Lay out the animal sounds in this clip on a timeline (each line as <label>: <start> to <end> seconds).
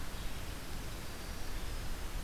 Winter Wren (Troglodytes hiemalis): 0.9 to 2.2 seconds